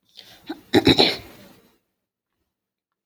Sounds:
Throat clearing